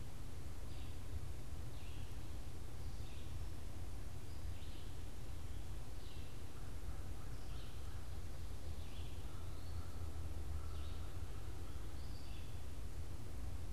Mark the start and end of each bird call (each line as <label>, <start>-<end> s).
Red-eyed Vireo (Vireo olivaceus), 0.0-6.6 s
American Crow (Corvus brachyrhynchos), 6.1-12.9 s
Red-eyed Vireo (Vireo olivaceus), 7.2-13.7 s